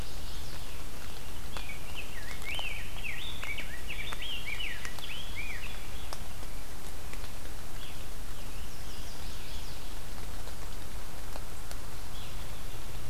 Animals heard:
Rose-breasted Grosbeak (Pheucticus ludovicianus), Scarlet Tanager (Piranga olivacea), Chestnut-sided Warbler (Setophaga pensylvanica)

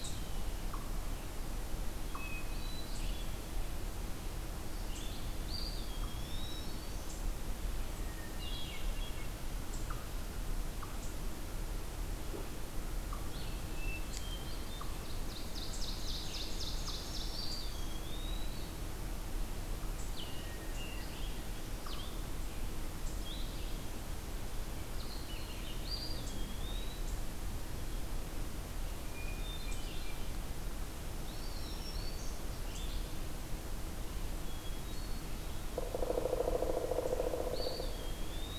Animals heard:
Hermit Thrush (Catharus guttatus), Red-eyed Vireo (Vireo olivaceus), Black-throated Green Warbler (Setophaga virens), Eastern Wood-Pewee (Contopus virens), Pileated Woodpecker (Dryocopus pileatus), Ovenbird (Seiurus aurocapilla)

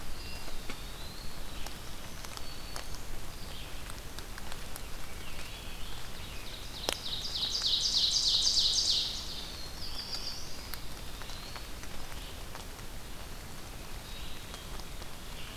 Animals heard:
Red-eyed Vireo (Vireo olivaceus), Hermit Thrush (Catharus guttatus), Scarlet Tanager (Piranga olivacea), Eastern Wood-Pewee (Contopus virens), Black-throated Blue Warbler (Setophaga caerulescens), Ovenbird (Seiurus aurocapilla), Black-throated Green Warbler (Setophaga virens)

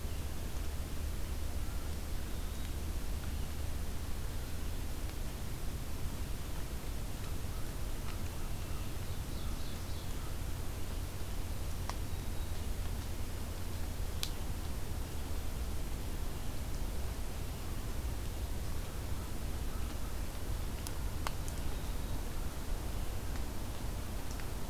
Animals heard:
Black-throated Green Warbler (Setophaga virens), Ovenbird (Seiurus aurocapilla)

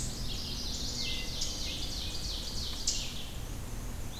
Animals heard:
Black-and-white Warbler (Mniotilta varia), Chestnut-sided Warbler (Setophaga pensylvanica), Eastern Chipmunk (Tamias striatus), Hermit Thrush (Catharus guttatus), Ovenbird (Seiurus aurocapilla)

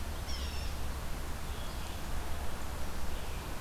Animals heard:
Red-eyed Vireo (Vireo olivaceus), Yellow-bellied Sapsucker (Sphyrapicus varius)

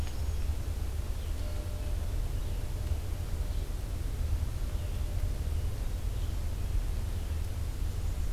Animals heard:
Red-eyed Vireo (Vireo olivaceus), Black-and-white Warbler (Mniotilta varia)

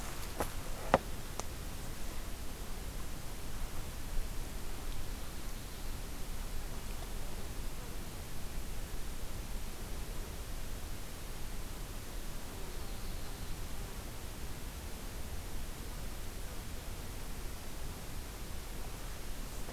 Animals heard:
Yellow-rumped Warbler (Setophaga coronata)

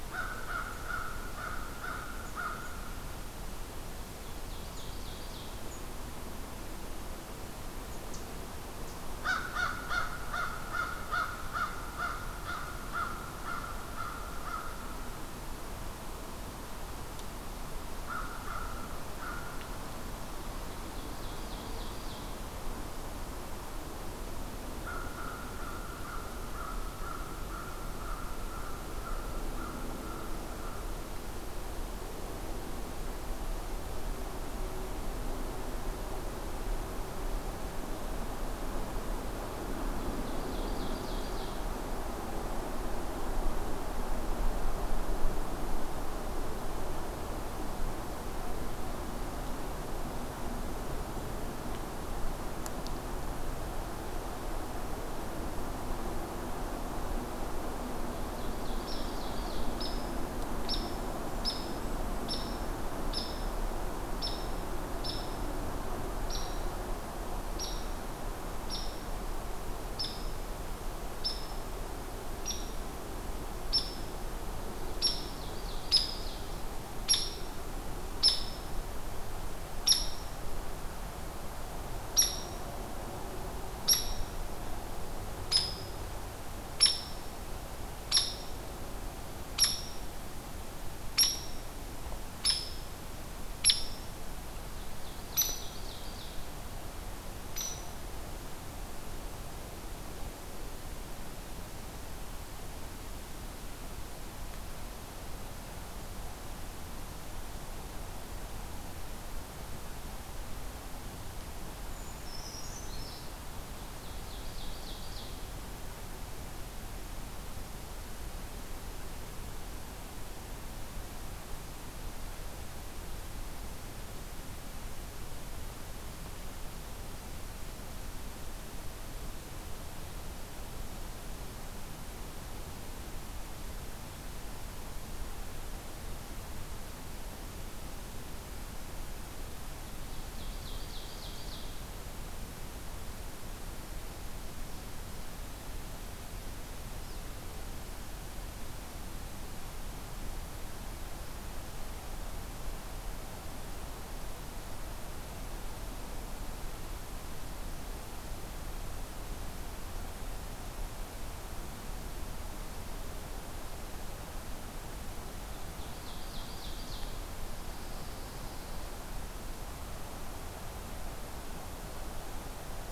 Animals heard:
Pine Warbler (Setophaga pinus), Brown Creeper (Certhia americana), Ovenbird (Seiurus aurocapilla), Golden-crowned Kinglet (Regulus satrapa), American Crow (Corvus brachyrhynchos), Hairy Woodpecker (Dryobates villosus)

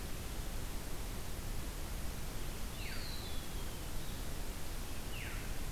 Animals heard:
Veery (Catharus fuscescens), Eastern Wood-Pewee (Contopus virens)

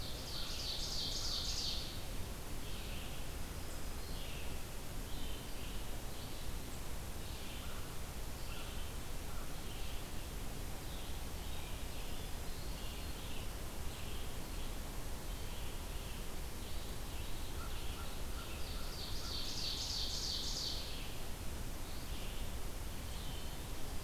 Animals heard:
Black-throated Green Warbler (Setophaga virens), Red-eyed Vireo (Vireo olivaceus), American Crow (Corvus brachyrhynchos), Ovenbird (Seiurus aurocapilla)

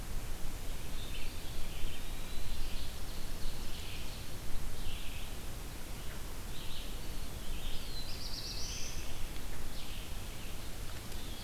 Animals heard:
Eastern Wood-Pewee (Contopus virens), Red-eyed Vireo (Vireo olivaceus), Black-throated Blue Warbler (Setophaga caerulescens)

